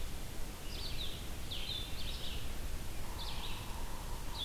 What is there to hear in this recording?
Blue-headed Vireo, Red-eyed Vireo, Yellow-bellied Sapsucker